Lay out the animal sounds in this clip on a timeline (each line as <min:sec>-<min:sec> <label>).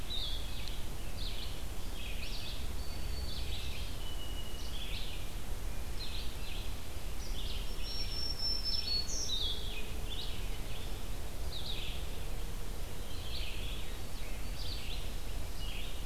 0:00.0-0:16.1 Red-eyed Vireo (Vireo olivaceus)
0:02.1-0:05.0 Song Sparrow (Melospiza melodia)
0:07.5-0:09.8 Black-throated Green Warbler (Setophaga virens)